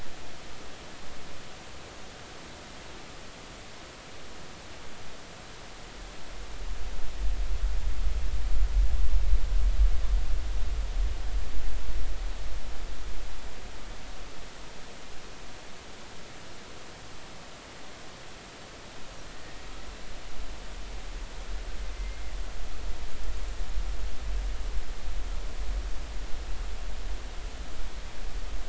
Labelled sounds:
19.3	19.6	killer whale, 1.8 to 1.9 kHz
21.9	22.3	killer whale, 2.0 to 2.2 kHz

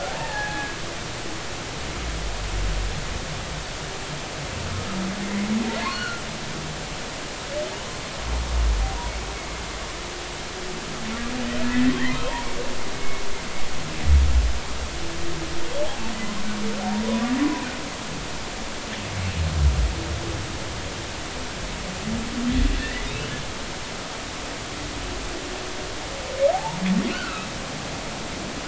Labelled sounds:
0.1	0.7	humpback whale, 0.80 to 1.9 kHz
5.8	6.2	humpback whale, 1.3 to 4.5 kHz
11.6	12.4	humpback whale, 0.90 to 2.1 kHz
12.9	13.2	humpback whale, 2.1 to 2.2 kHz
15.8	16.1	humpback whale, 0.80 to 0.93 kHz
22.8	23.1	humpback whale, 1.7 to 2.1 kHz
26.5	27.5	humpback whale, 0.80 to 1.6 kHz

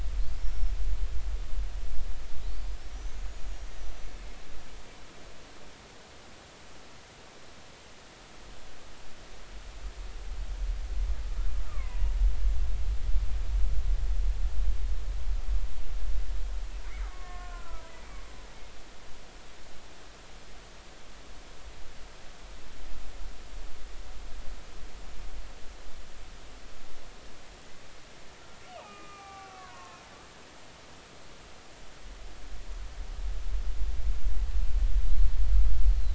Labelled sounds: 0.4	0.7	killer whale, Bigg's (transient), 5.2 to 5.6 kHz
2.5	4.2	killer whale, Bigg's (transient), 4.3 to 6.8 kHz
11.7	12.0	killer whale, Bigg's (transient), 0.93 to 1.3 kHz
17.0	18.2	killer whale, Bigg's (transient), 0.93 to 7.5 kHz
28.8	30.0	killer whale, Bigg's (transient), 0.80 to 2.7 kHz
35.9	36.1	killer whale, Bigg's (transient), 3.9 to 4.3 kHz

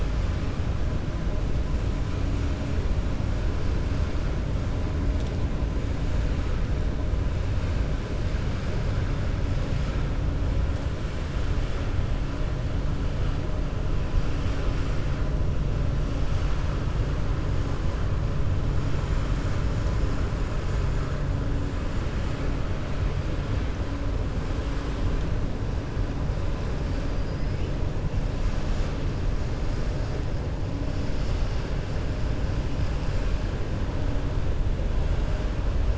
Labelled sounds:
27.2	27.5	killer whale, 4.8 to 5.2 kHz

